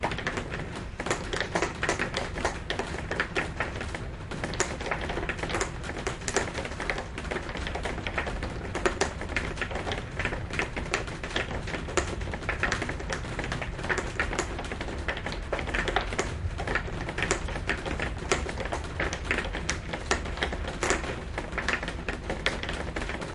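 Deep roaring wind humming. 0:00.0 - 0:23.3
Heavy raindrops irregularly hitting a roof produce a clicking sound. 0:00.0 - 0:23.3

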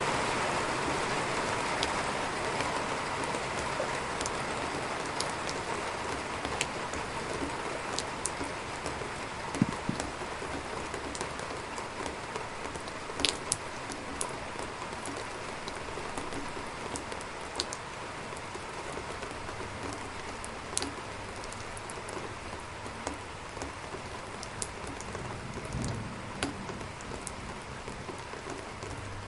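Heavy rain falling. 0:00.0 - 0:29.3
Thunder resounds in the distance. 0:25.7 - 0:26.2

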